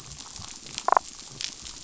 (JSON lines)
{"label": "biophony, damselfish", "recorder": "SoundTrap 500"}